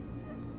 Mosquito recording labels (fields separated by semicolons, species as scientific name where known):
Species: Culex quinquefasciatus; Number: one; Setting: insect culture